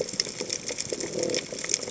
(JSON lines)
{"label": "biophony", "recorder": "HydroMoth"}